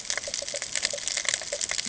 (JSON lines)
{"label": "ambient", "recorder": "HydroMoth"}